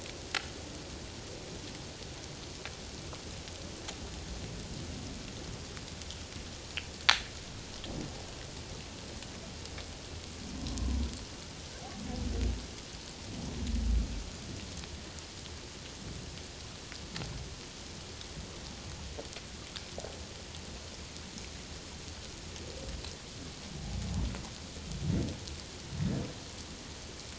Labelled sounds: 10.5	11.1	humpback whale, 0.91 to 1.1 kHz

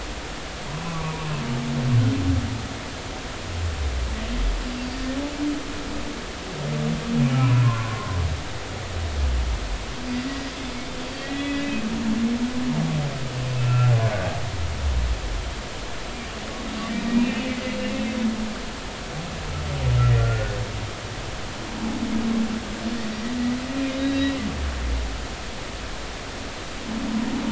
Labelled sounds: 0.8	1.1	humpback whale, 0.93 to 1.2 kHz
7.4	8.2	humpback whale, 0.96 to 1.2 kHz
11.0	11.6	humpback whale, 1.9 to 4.6 kHz
13.6	13.9	humpback whale, 1.3 to 2.7 kHz
17.1	17.5	humpback whale, 2.3 to 2.8 kHz
20.0	20.6	humpback whale, 1.3 to 2.0 kHz
23.9	24.3	humpback whale, 3.6 to 4.0 kHz

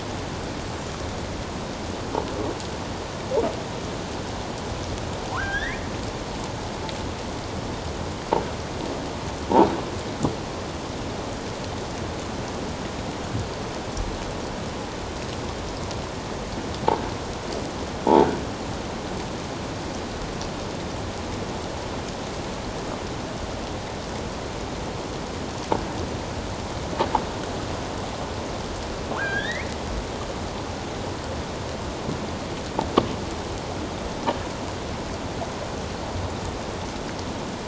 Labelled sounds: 5.3	5.9	killer whale, offshore, 0.78 to 3.8 kHz
29.2	29.8	killer whale, offshore, 1.3 to 4.0 kHz

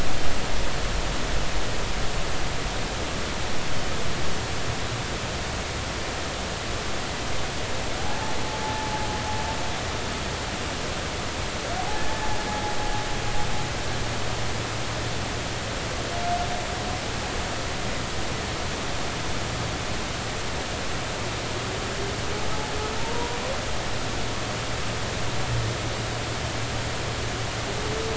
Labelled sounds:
8.0	8.4	humpback whale, 0.80 to 0.90 kHz
8.6	8.9	humpback whale, 0.83 to 0.93 kHz
11.8	12.0	humpback whale, 0.80 to 0.90 kHz
23.0	23.4	humpback whale, 0.86 to 1.1 kHz

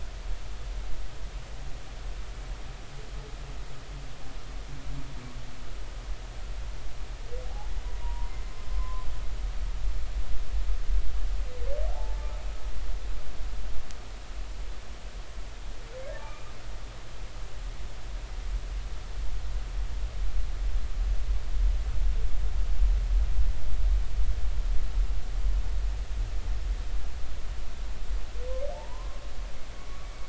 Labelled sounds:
8.0	8.3	humpback whale, 0.90 to 1.1 kHz
8.7	9.1	humpback whale, 0.96 to 1.1 kHz
11.9	12.3	humpback whale, 0.80 to 0.93 kHz
16.2	16.5	humpback whale, 1.1 to 2.5 kHz
28.7	30.2	humpback whale, 0.83 to 2.3 kHz

